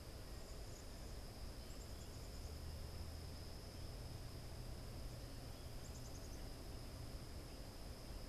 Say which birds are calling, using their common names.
Black-capped Chickadee